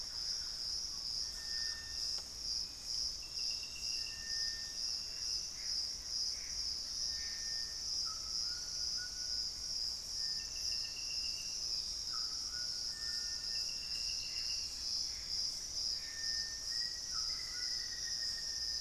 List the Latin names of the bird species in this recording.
Campylorhynchus turdinus, Crypturellus soui, unidentified bird, Cercomacra cinerascens, Ramphastos tucanus, Formicarius analis